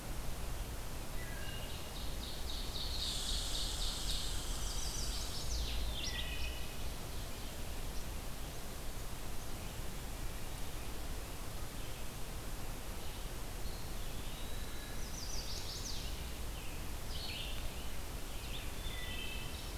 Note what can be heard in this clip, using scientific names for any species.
Vireo olivaceus, Hylocichla mustelina, Seiurus aurocapilla, Tamiasciurus hudsonicus, Setophaga pensylvanica, Contopus virens, Piranga olivacea